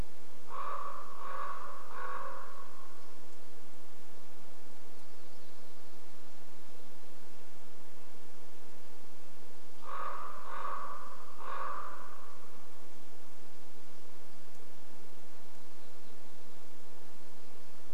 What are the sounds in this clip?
Common Raven call, warbler song